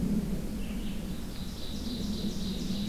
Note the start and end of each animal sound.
[0.00, 2.88] Red-eyed Vireo (Vireo olivaceus)
[0.96, 2.88] Ovenbird (Seiurus aurocapilla)

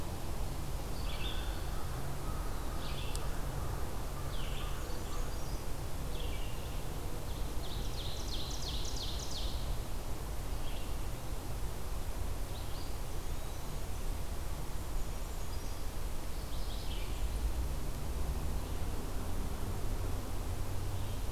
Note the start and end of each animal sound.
[0.87, 17.01] Red-eyed Vireo (Vireo olivaceus)
[4.30, 5.63] Blackburnian Warbler (Setophaga fusca)
[7.41, 9.79] Ovenbird (Seiurus aurocapilla)
[13.07, 13.82] Eastern Wood-Pewee (Contopus virens)

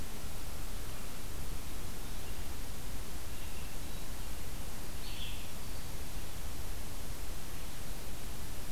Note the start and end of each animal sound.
[4.64, 5.67] Red-eyed Vireo (Vireo olivaceus)

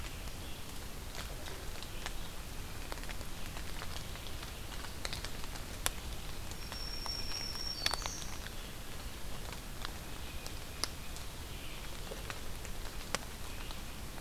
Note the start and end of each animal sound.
[0.00, 4.86] Red-eyed Vireo (Vireo olivaceus)
[6.36, 8.42] Black-throated Green Warbler (Setophaga virens)
[6.85, 14.21] Red-eyed Vireo (Vireo olivaceus)
[9.89, 11.31] Tufted Titmouse (Baeolophus bicolor)

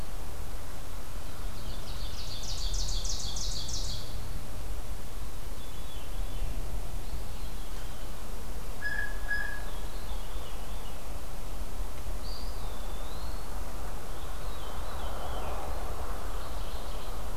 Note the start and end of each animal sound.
[1.29, 4.40] Ovenbird (Seiurus aurocapilla)
[5.49, 6.58] Veery (Catharus fuscescens)
[6.79, 8.33] Eastern Wood-Pewee (Contopus virens)
[8.59, 9.70] Blue Jay (Cyanocitta cristata)
[9.53, 11.19] Veery (Catharus fuscescens)
[12.10, 13.62] Eastern Wood-Pewee (Contopus virens)
[14.07, 15.50] Veery (Catharus fuscescens)
[16.20, 17.23] Mourning Warbler (Geothlypis philadelphia)

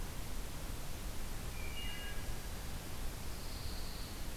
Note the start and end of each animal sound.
[1.28, 2.47] Wood Thrush (Hylocichla mustelina)
[3.13, 4.36] Pine Warbler (Setophaga pinus)

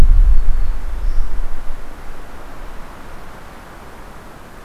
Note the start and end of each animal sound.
[0.00, 1.59] Black-throated Green Warbler (Setophaga virens)

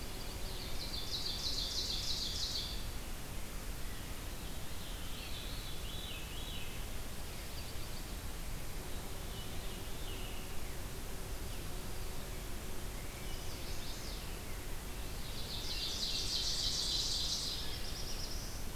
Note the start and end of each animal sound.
[0.10, 2.87] Ovenbird (Seiurus aurocapilla)
[4.29, 6.70] Veery (Catharus fuscescens)
[8.93, 10.85] Veery (Catharus fuscescens)
[13.10, 14.42] Chestnut-sided Warbler (Setophaga pensylvanica)
[14.98, 17.81] Ovenbird (Seiurus aurocapilla)
[17.09, 18.75] Black-throated Blue Warbler (Setophaga caerulescens)

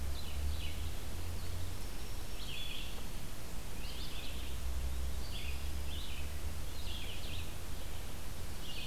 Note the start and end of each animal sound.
[0.00, 8.86] Red-eyed Vireo (Vireo olivaceus)
[1.48, 2.96] Black-throated Green Warbler (Setophaga virens)

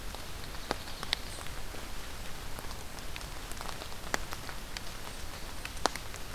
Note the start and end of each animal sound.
[0.00, 1.47] Ovenbird (Seiurus aurocapilla)

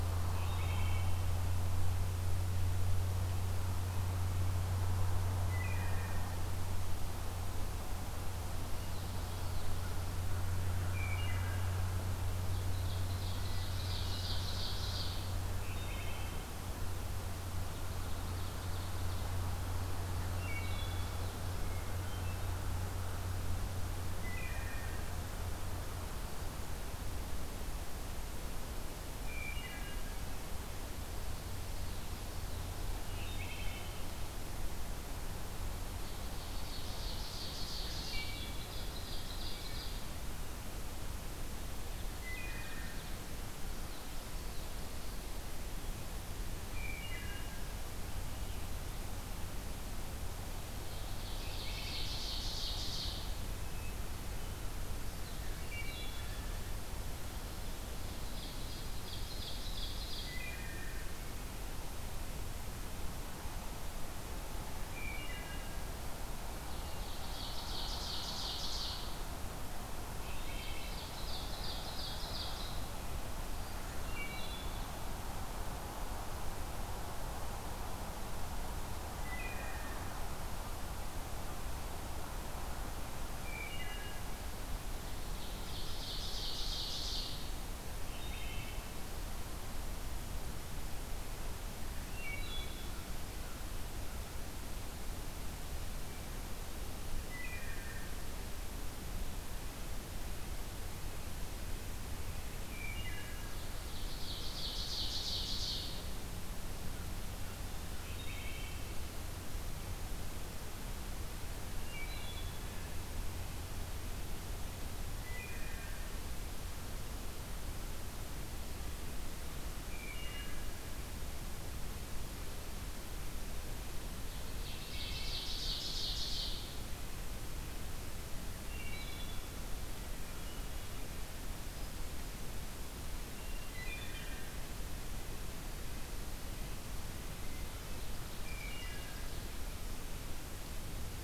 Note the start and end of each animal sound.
[0.30, 1.41] Wood Thrush (Hylocichla mustelina)
[5.40, 6.49] Wood Thrush (Hylocichla mustelina)
[8.60, 10.16] Common Yellowthroat (Geothlypis trichas)
[9.60, 10.57] American Crow (Corvus brachyrhynchos)
[10.88, 11.80] Wood Thrush (Hylocichla mustelina)
[12.52, 15.33] Ovenbird (Seiurus aurocapilla)
[15.57, 16.59] Wood Thrush (Hylocichla mustelina)
[17.73, 19.73] Ovenbird (Seiurus aurocapilla)
[20.32, 21.23] Wood Thrush (Hylocichla mustelina)
[21.51, 22.66] Hermit Thrush (Catharus guttatus)
[23.99, 25.13] Wood Thrush (Hylocichla mustelina)
[29.16, 30.18] Wood Thrush (Hylocichla mustelina)
[32.97, 34.24] Wood Thrush (Hylocichla mustelina)
[35.84, 38.30] Ovenbird (Seiurus aurocapilla)
[37.95, 38.76] Wood Thrush (Hylocichla mustelina)
[38.62, 40.14] Common Yellowthroat (Geothlypis trichas)
[39.37, 40.06] Wood Thrush (Hylocichla mustelina)
[41.98, 43.27] Ovenbird (Seiurus aurocapilla)
[42.19, 43.01] Wood Thrush (Hylocichla mustelina)
[43.56, 45.16] Common Yellowthroat (Geothlypis trichas)
[46.72, 47.58] Wood Thrush (Hylocichla mustelina)
[50.83, 53.31] Ovenbird (Seiurus aurocapilla)
[51.23, 52.13] Wood Thrush (Hylocichla mustelina)
[55.58, 56.27] Wood Thrush (Hylocichla mustelina)
[58.26, 60.49] Ovenbird (Seiurus aurocapilla)
[60.13, 61.20] Wood Thrush (Hylocichla mustelina)
[64.79, 65.88] Wood Thrush (Hylocichla mustelina)
[66.58, 69.03] Ovenbird (Seiurus aurocapilla)
[70.27, 70.97] Wood Thrush (Hylocichla mustelina)
[70.68, 72.90] Ovenbird (Seiurus aurocapilla)
[74.00, 74.91] Wood Thrush (Hylocichla mustelina)
[79.03, 79.86] Wood Thrush (Hylocichla mustelina)
[83.31, 84.39] Wood Thrush (Hylocichla mustelina)
[85.34, 87.46] Ovenbird (Seiurus aurocapilla)
[87.97, 88.80] Wood Thrush (Hylocichla mustelina)
[92.07, 93.10] Wood Thrush (Hylocichla mustelina)
[92.22, 94.43] American Crow (Corvus brachyrhynchos)
[97.36, 98.17] Wood Thrush (Hylocichla mustelina)
[102.55, 103.47] Wood Thrush (Hylocichla mustelina)
[103.63, 106.05] Ovenbird (Seiurus aurocapilla)
[107.99, 108.89] Wood Thrush (Hylocichla mustelina)
[111.72, 112.93] Wood Thrush (Hylocichla mustelina)
[115.04, 116.08] Wood Thrush (Hylocichla mustelina)
[119.66, 120.97] Wood Thrush (Hylocichla mustelina)
[124.39, 126.90] Ovenbird (Seiurus aurocapilla)
[124.68, 125.57] Wood Thrush (Hylocichla mustelina)
[128.58, 129.47] Wood Thrush (Hylocichla mustelina)
[130.23, 131.14] Hermit Thrush (Catharus guttatus)
[133.28, 134.29] Hermit Thrush (Catharus guttatus)
[133.58, 134.63] Wood Thrush (Hylocichla mustelina)
[137.77, 139.72] Ovenbird (Seiurus aurocapilla)
[138.36, 139.43] Wood Thrush (Hylocichla mustelina)

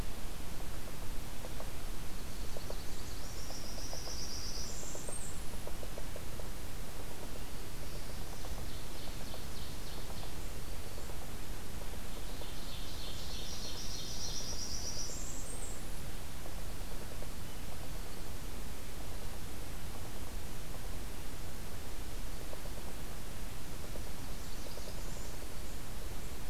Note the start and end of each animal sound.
[0.93, 12.60] Yellow-bellied Sapsucker (Sphyrapicus varius)
[2.06, 5.66] Blackburnian Warbler (Setophaga fusca)
[7.22, 8.65] Black-throated Blue Warbler (Setophaga caerulescens)
[8.29, 10.62] Ovenbird (Seiurus aurocapilla)
[12.10, 14.42] Ovenbird (Seiurus aurocapilla)
[13.22, 15.86] Blackburnian Warbler (Setophaga fusca)
[24.09, 25.61] Blackburnian Warbler (Setophaga fusca)

